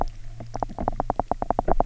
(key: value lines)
label: biophony, knock
recorder: SoundTrap 300